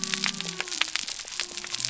{"label": "biophony", "recorder": "SoundTrap 300"}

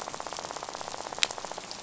{"label": "biophony, rattle", "recorder": "SoundTrap 500"}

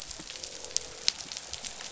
{"label": "biophony, croak", "recorder": "SoundTrap 500"}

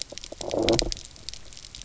{"label": "biophony, low growl", "recorder": "SoundTrap 300"}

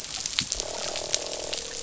{"label": "biophony, croak", "recorder": "SoundTrap 500"}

